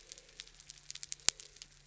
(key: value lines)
label: biophony
recorder: SoundTrap 300

label: anthrophony, boat engine
recorder: SoundTrap 300